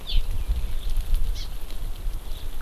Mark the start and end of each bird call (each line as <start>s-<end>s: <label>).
0.1s-0.2s: Hawaii Amakihi (Chlorodrepanis virens)
1.4s-1.5s: Hawaii Amakihi (Chlorodrepanis virens)